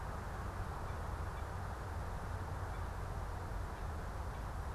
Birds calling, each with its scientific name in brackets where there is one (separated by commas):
unidentified bird